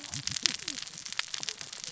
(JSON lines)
{"label": "biophony, cascading saw", "recorder": "SoundTrap 600 or HydroMoth"}